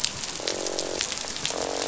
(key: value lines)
label: biophony, croak
recorder: SoundTrap 500